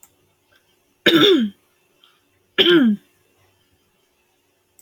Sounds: Throat clearing